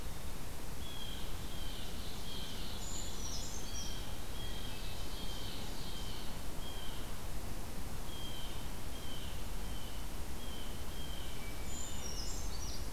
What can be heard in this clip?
Blue Jay, Ovenbird, Brown Creeper, Hermit Thrush